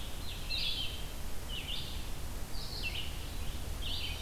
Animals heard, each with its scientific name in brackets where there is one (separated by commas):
Red-eyed Vireo (Vireo olivaceus), Eastern Wood-Pewee (Contopus virens), Scarlet Tanager (Piranga olivacea)